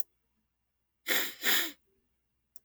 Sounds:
Sniff